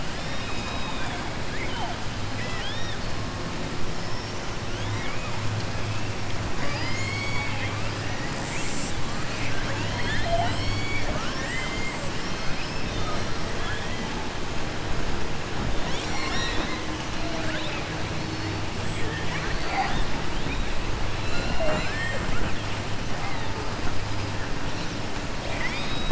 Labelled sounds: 1.4	1.9	killer whale, southern resident, 0.69 to 3.2 kHz
2.3	3.0	killer whale, southern resident, 1.6 to 6.0 kHz
4.7	5.3	killer whale, southern resident, 1.0 to 3.8 kHz
6.5	7.9	killer whale, southern resident, 0.61 to 7.8 kHz
18.9	20.1	killer whale, southern resident, 0.71 to 4.8 kHz

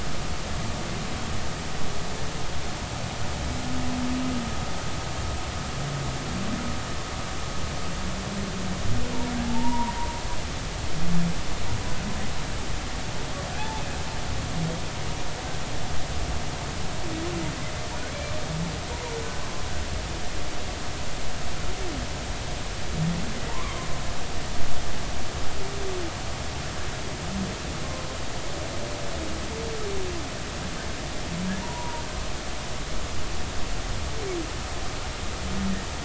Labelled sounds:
9.4	9.9	humpback whale, 0.80 to 1.1 kHz
13.6	13.8	humpback whale, 0.80 to 0.93 kHz
23.5	23.8	humpback whale, 0.86 to 1.2 kHz
31.6	32.0	humpback whale, 0.90 to 1.1 kHz

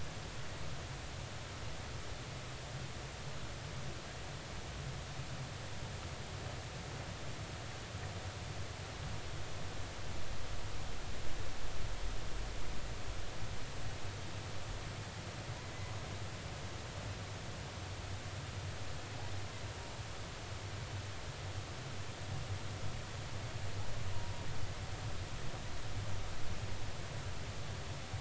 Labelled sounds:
24.1	24.4	humpback whale, 0.90 to 1.1 kHz

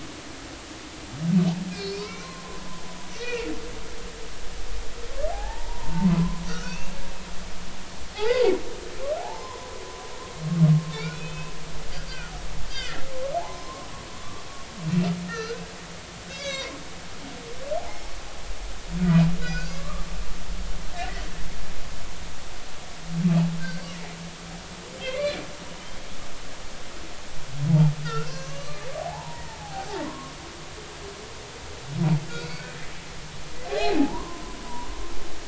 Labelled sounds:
1.7	2.4	humpback whale, 0.90 to 5.4 kHz
3.1	3.5	humpback whale, 1.8 to 2.5 kHz
5.3	7.0	humpback whale, 0.80 to 2.8 kHz
8.1	9.8	humpback whale, 0.80 to 1.6 kHz
10.9	11.5	humpback whale, 2.2 to 4.0 kHz
12.7	13.0	humpback whale, 1.3 to 4.9 kHz
14.4	15.6	humpback whale, 0.80 to 4.3 kHz
16.3	16.7	humpback whale, 1.5 to 6.3 kHz
17.8	18.1	humpback whale, 0.80 to 1.1 kHz
19.4	20.1	humpback whale, 1.0 to 5.0 kHz
23.6	23.8	humpback whale, 1.5 to 1.6 kHz
25.2	25.5	humpback whale, 2.2 to 3.6 kHz
28.0	30.3	humpback whale, 0.80 to 6.3 kHz
33.7	34.9	humpback whale, 0.80 to 4.3 kHz

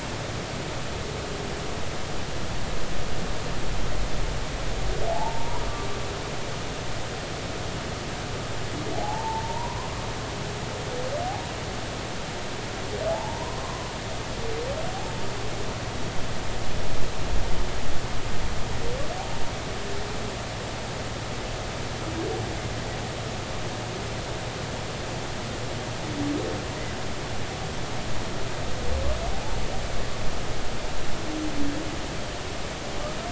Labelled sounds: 5.1	5.6	humpback whale, 0.80 to 1.0 kHz
8.9	9.9	humpback whale, 0.80 to 1.2 kHz
13.1	13.9	humpback whale, 0.80 to 1.2 kHz

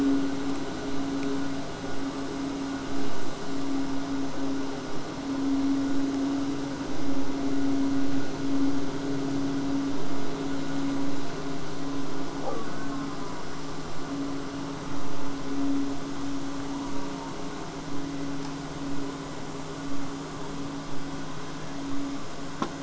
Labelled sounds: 6.9	11.9	vessel noise, 0 to 8.0 kHz
12.4	13.4	killer whale, southern resident, J pod, call S04, 0.15 to 1.7 kHz
16.7	17.7	killer whale, southern resident, J pod, call S04, 0.19 to 1.6 kHz

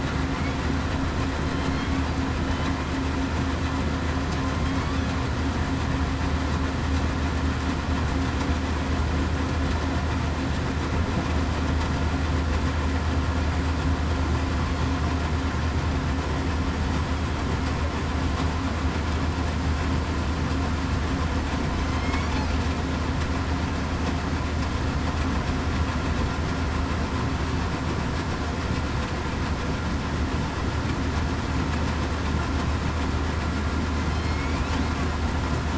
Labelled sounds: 34.2	34.6	killer whale, southern resident, 2.1 to 2.5 kHz

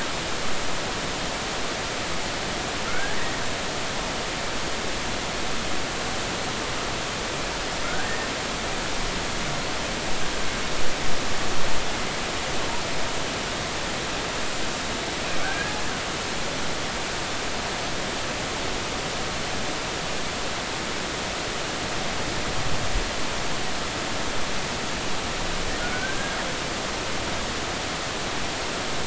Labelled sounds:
2.9	3.3	killer whale, Bigg's (transient), 1.2 to 1.9 kHz
7.8	8.1	killer whale, Bigg's (transient), 1.3 to 1.7 kHz
15.4	15.8	killer whale, Bigg's (transient), 1.4 to 1.7 kHz
25.9	26.4	killer whale, Bigg's (transient), 1.4 to 1.7 kHz

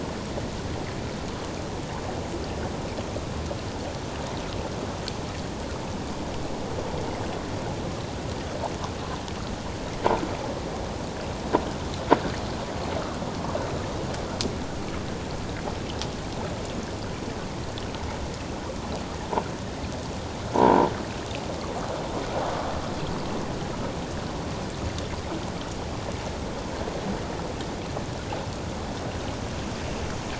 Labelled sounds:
20.6	20.9	croaking sound likely from a nearby submerged object, 0.84 to 1.1 kHz

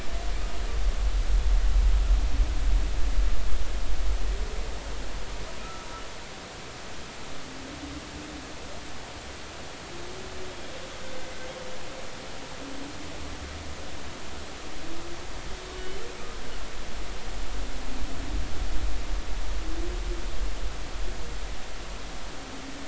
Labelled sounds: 5.6	5.9	humpback whale, 1.2 to 1.4 kHz
15.7	16.0	humpback whale, 2.9 to 3.1 kHz

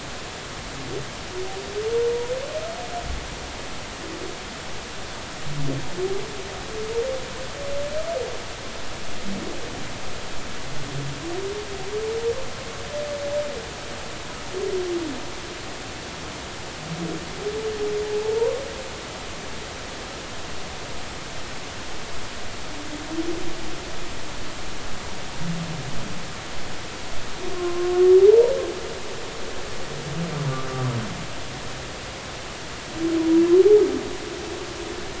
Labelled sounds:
18.1	18.6	humpback whale, 0.83 to 1.2 kHz
27.5	28.5	humpback whale, 0.80 to 1.1 kHz

